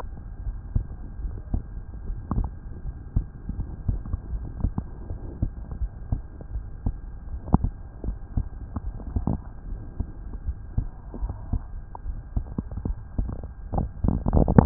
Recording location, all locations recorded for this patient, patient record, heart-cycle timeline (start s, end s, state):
aortic valve (AV)
aortic valve (AV)+pulmonary valve (PV)+tricuspid valve (TV)+mitral valve (MV)
#Age: Adolescent
#Sex: Male
#Height: 144.0 cm
#Weight: 41.3 kg
#Pregnancy status: False
#Murmur: Present
#Murmur locations: tricuspid valve (TV)
#Most audible location: tricuspid valve (TV)
#Systolic murmur timing: Early-systolic
#Systolic murmur shape: Plateau
#Systolic murmur grading: I/VI
#Systolic murmur pitch: Low
#Systolic murmur quality: Harsh
#Diastolic murmur timing: nan
#Diastolic murmur shape: nan
#Diastolic murmur grading: nan
#Diastolic murmur pitch: nan
#Diastolic murmur quality: nan
#Outcome: Abnormal
#Campaign: 2015 screening campaign
0.00	0.44	unannotated
0.44	0.58	S1
0.58	0.74	systole
0.74	0.86	S2
0.86	1.18	diastole
1.18	1.32	S1
1.32	1.50	systole
1.50	1.64	S2
1.64	2.06	diastole
2.06	2.20	S1
2.20	2.36	systole
2.36	2.52	S2
2.52	2.82	diastole
2.82	2.96	S1
2.96	3.14	systole
3.14	3.24	S2
3.24	3.56	diastole
3.56	3.70	S1
3.70	3.86	systole
3.86	4.00	S2
4.00	4.30	diastole
4.30	4.42	S1
4.42	4.58	systole
4.58	4.72	S2
4.72	5.08	diastole
5.08	5.18	S1
5.18	5.40	systole
5.40	5.50	S2
5.50	5.80	diastole
5.80	5.90	S1
5.90	6.10	systole
6.10	6.22	S2
6.22	6.52	diastole
6.52	6.64	S1
6.64	6.84	systole
6.84	6.96	S2
6.96	7.30	diastole
7.30	7.40	S1
7.40	7.59	systole
7.59	7.70	S2
7.70	8.04	diastole
8.04	8.18	S1
8.18	8.34	systole
8.34	8.46	S2
8.46	8.82	diastole
8.82	8.96	S1
8.96	9.13	systole
9.13	9.28	S2
9.28	9.68	diastole
9.68	9.80	S1
9.80	9.96	systole
9.96	10.08	S2
10.08	10.44	diastole
10.44	10.56	S1
10.56	10.74	systole
10.74	10.88	S2
10.88	11.19	diastole
11.19	11.34	S1
11.34	11.49	systole
11.49	11.64	S2
11.64	12.02	diastole
12.02	12.18	S1
12.18	12.32	systole
12.32	12.44	S2
12.44	12.82	diastole
12.82	12.98	S1
12.98	13.15	systole
13.15	13.34	S2
13.34	13.74	diastole
13.74	13.90	S1
13.90	14.66	unannotated